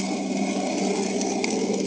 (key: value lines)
label: anthrophony, boat engine
recorder: HydroMoth